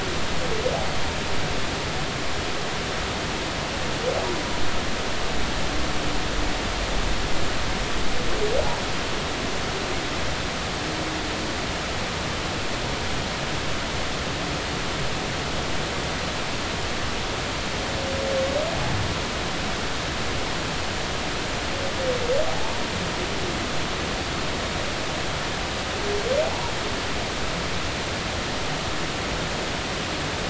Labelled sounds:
26.4	26.7	humpback whale, 0.80 to 1.0 kHz

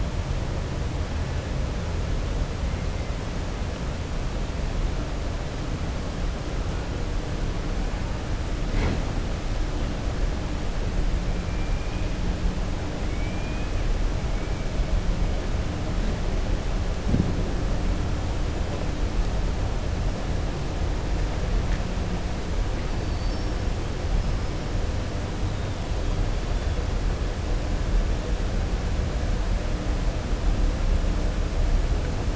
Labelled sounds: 13.1	13.7	killer whale, 1.7 to 3.3 kHz

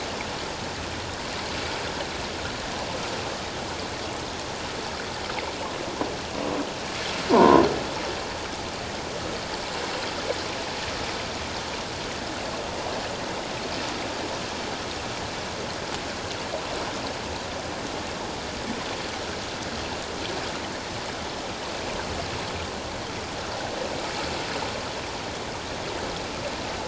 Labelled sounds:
7.3	7.6	croaking sound likely from a nearby submerged object, 0.84 to 1.1 kHz

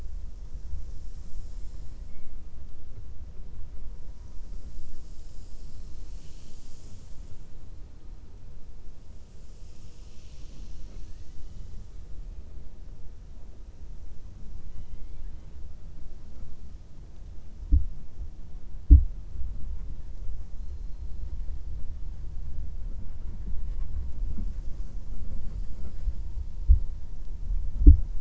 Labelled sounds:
14.6	15.5	killer whale, 1.1 to 4.0 kHz

